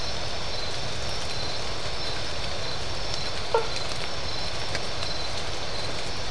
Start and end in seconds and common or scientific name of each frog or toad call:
3.5	3.9	blacksmith tree frog